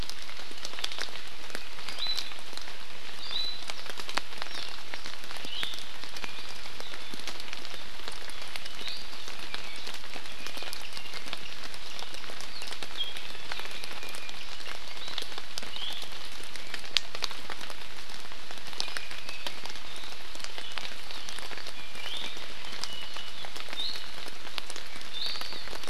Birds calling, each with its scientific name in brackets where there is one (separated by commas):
Iiwi (Drepanis coccinea)